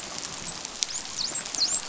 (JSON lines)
{"label": "biophony, dolphin", "recorder": "SoundTrap 500"}